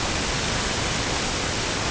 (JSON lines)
{"label": "ambient", "recorder": "HydroMoth"}